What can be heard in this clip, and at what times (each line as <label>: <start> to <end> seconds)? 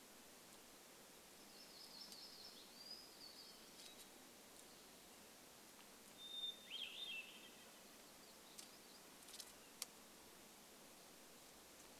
Red-breasted Nuthatch song: 0 to 2 seconds
warbler song: 0 to 4 seconds
Hermit Thrush song: 2 to 4 seconds
Hermit Thrush song: 6 to 8 seconds
Yellow-rumped Warbler song: 8 to 10 seconds